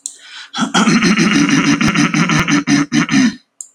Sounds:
Throat clearing